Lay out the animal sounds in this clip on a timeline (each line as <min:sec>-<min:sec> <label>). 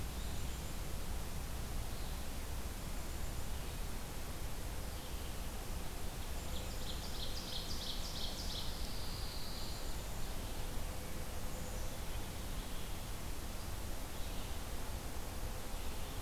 0:00.0-0:02.7 Red-eyed Vireo (Vireo olivaceus)
0:00.0-0:03.7 Black-capped Chickadee (Poecile atricapillus)
0:03.3-0:16.2 Red-eyed Vireo (Vireo olivaceus)
0:06.3-0:11.9 Black-capped Chickadee (Poecile atricapillus)
0:06.3-0:08.9 Ovenbird (Seiurus aurocapilla)
0:08.4-0:10.0 Pine Warbler (Setophaga pinus)